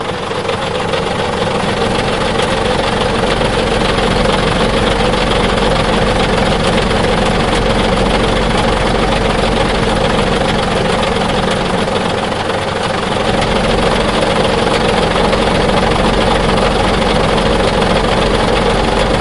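Diesel engine running. 0.0 - 19.2

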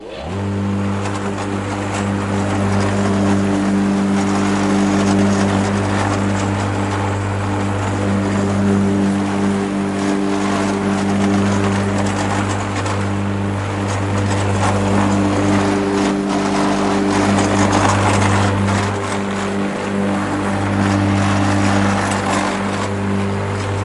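Repeated loud metallic clacking of a lawnmower outdoors. 0.1 - 23.8
Loud, continuous buzzing and humming of a lawn mower outdoors. 0.2 - 23.8

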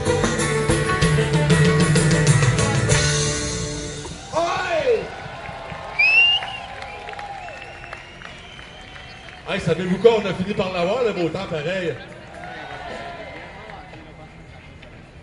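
A band with banjo and drums is playing music indoors. 0.0 - 3.8
A person rejoices loudly. 4.3 - 5.1
A crowd claps and cheers in the background. 5.1 - 9.5
A person whistles loudly nearby. 6.0 - 6.4
A man is speaking nearby. 9.5 - 12.0
A crowd is cheering calmly in the background. 12.4 - 13.8
Someone is speaking indistinctly in the background. 12.4 - 14.6
A single drumbeat plays in the background. 12.9 - 13.0

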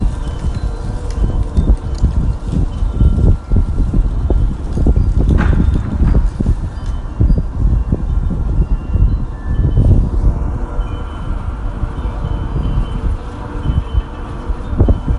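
The wind rustles through the trees. 0.0 - 15.2
Traffic noises. 0.0 - 15.2
Wind blowing into a microphone. 0.0 - 15.2
Wind chimes are sounding. 0.0 - 15.2

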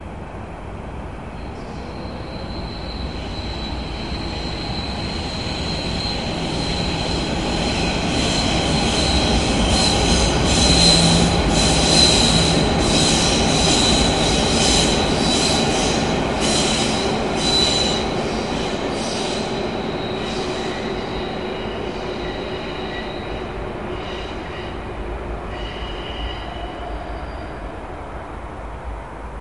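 A train passes by with sharp, rhythmic squeaking of metal wheels on the tracks. 0.0 - 29.4

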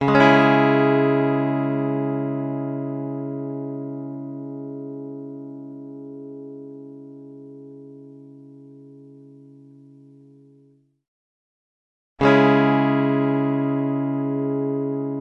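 Guitar playing a major arpeggio cleanly without reverb. 0.0 - 2.2
Guitar chords harmonizing and slowly fading into silence. 2.0 - 11.0
A guitar chord is played in a single strum. 12.2 - 14.7

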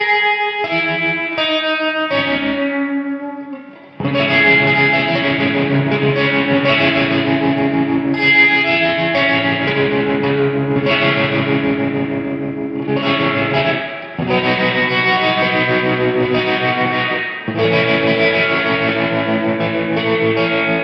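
A person is playing the guitar. 0.0 - 20.8

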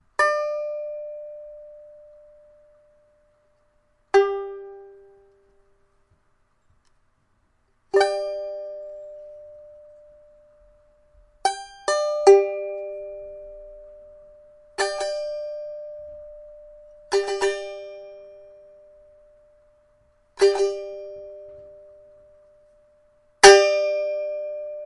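A high-pitched note is plucked on a guitar and slowly fades away. 0.1 - 7.9
A short sequence of high-pitched guitar notes slowly fades away. 7.9 - 23.4
A high-pitched note is plucked on a guitar and slowly fades away. 23.4 - 24.9

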